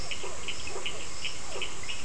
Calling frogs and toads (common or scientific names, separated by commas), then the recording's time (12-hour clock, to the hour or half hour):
Burmeister's tree frog, Physalaemus cuvieri, Cochran's lime tree frog
~7pm